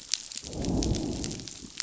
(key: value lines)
label: biophony, growl
recorder: SoundTrap 500